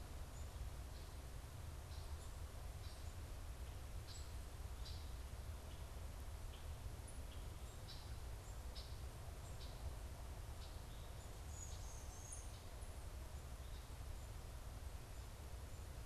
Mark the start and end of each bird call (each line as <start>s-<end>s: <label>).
4.1s-9.0s: Red-winged Blackbird (Agelaius phoeniceus)
11.3s-12.9s: Black-capped Chickadee (Poecile atricapillus)